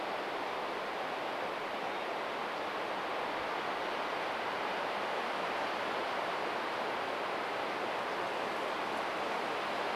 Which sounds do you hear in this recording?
Hermit Thrush song